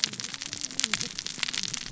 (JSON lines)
{"label": "biophony, cascading saw", "recorder": "SoundTrap 600 or HydroMoth"}